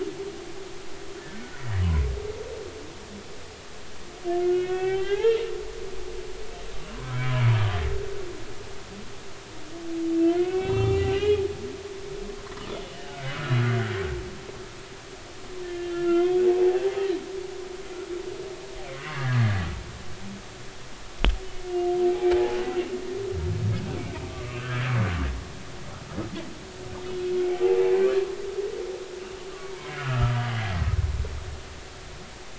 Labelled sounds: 0.7	1.8	humpback whale, 0.80 to 2.0 kHz
4.4	5.4	humpback whale, 0.80 to 3.5 kHz
6.9	7.3	humpback whale, 0.96 to 1.1 kHz
10.2	11.5	humpback whale, 0.80 to 7.1 kHz
12.8	13.2	humpback whale, 2.8 to 3.0 kHz
15.6	16.4	humpback whale, 1.3 to 3.4 kHz
19.1	19.7	humpback whale, 1.6 to 1.9 kHz
21.7	22.0	humpback whale, 2.8 to 2.9 kHz
22.3	22.6	humpback whale, 0.80 to 0.93 kHz
24.2	24.9	humpback whale, 1.1 to 1.8 kHz
29.8	30.4	humpback whale, 1.2 to 2.3 kHz

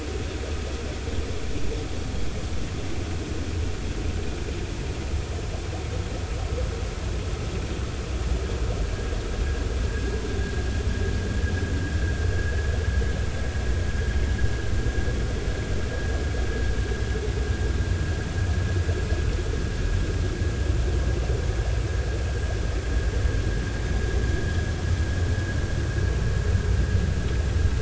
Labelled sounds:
9.9	10.2	vessel noise, 1.6 to 1.7 kHz

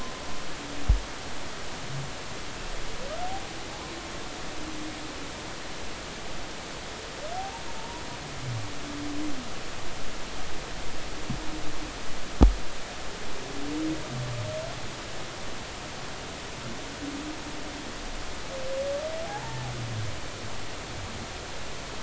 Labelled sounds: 7.8	8.0	humpback whale, 0.86 to 1.0 kHz
19.2	19.7	humpback whale, 0.80 to 0.99 kHz

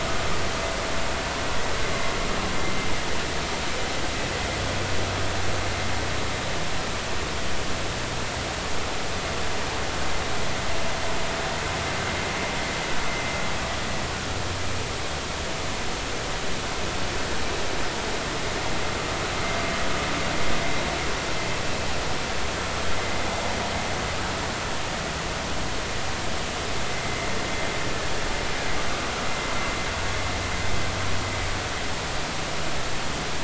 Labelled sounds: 27.0	27.3	vessel noise, 2.0 to 2.1 kHz

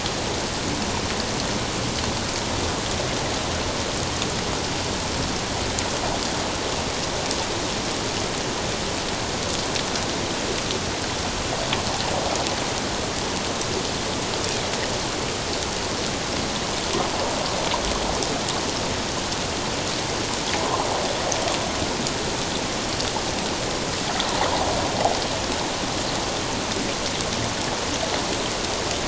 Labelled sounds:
20.6	20.9	water noise, 0.91 to 1.2 kHz

